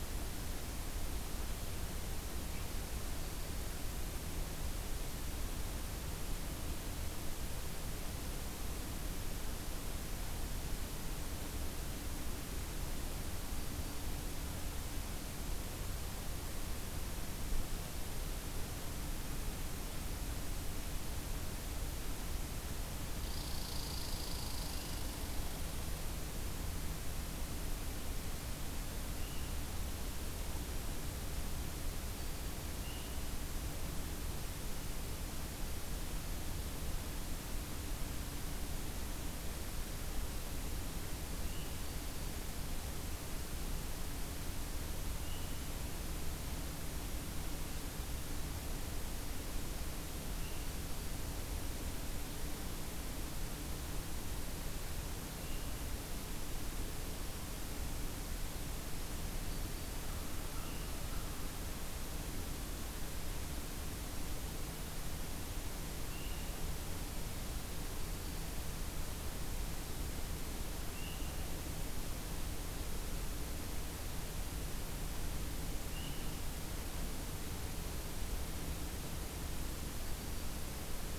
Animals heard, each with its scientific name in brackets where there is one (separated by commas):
Red Squirrel (Tamiasciurus hudsonicus), Black-throated Green Warbler (Setophaga virens)